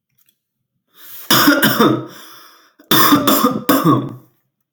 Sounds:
Cough